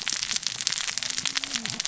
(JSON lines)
{"label": "biophony, cascading saw", "recorder": "SoundTrap 600 or HydroMoth"}